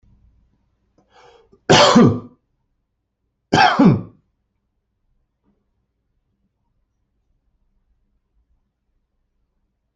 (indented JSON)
{
  "expert_labels": [
    {
      "quality": "good",
      "cough_type": "dry",
      "dyspnea": false,
      "wheezing": false,
      "stridor": false,
      "choking": false,
      "congestion": false,
      "nothing": true,
      "diagnosis": "healthy cough",
      "severity": "pseudocough/healthy cough"
    }
  ],
  "age": 53,
  "gender": "male",
  "respiratory_condition": false,
  "fever_muscle_pain": false,
  "status": "healthy"
}